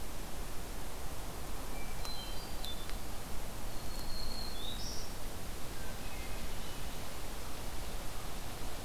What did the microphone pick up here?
Hermit Thrush, Black-throated Green Warbler